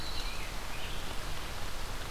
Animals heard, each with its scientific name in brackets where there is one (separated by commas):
Rose-breasted Grosbeak (Pheucticus ludovicianus), Winter Wren (Troglodytes hiemalis)